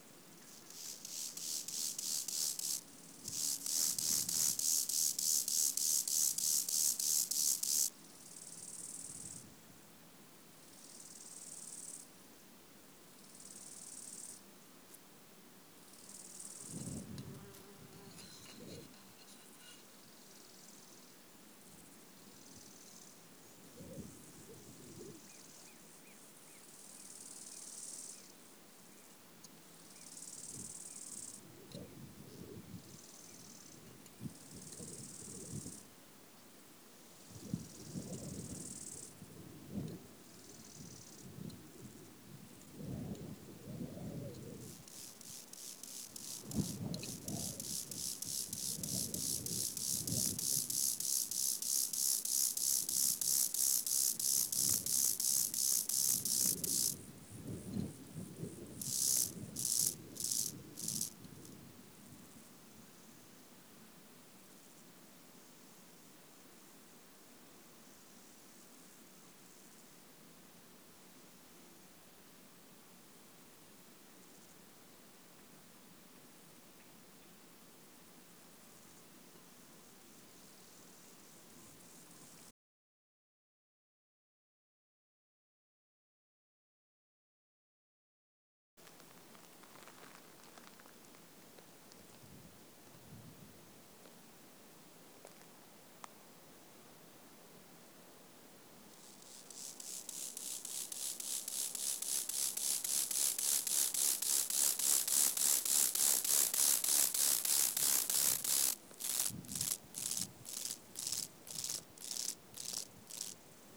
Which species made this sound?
Chorthippus mollis